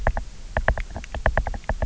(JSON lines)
{"label": "biophony, knock", "recorder": "SoundTrap 300"}